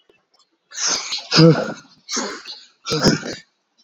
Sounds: Sigh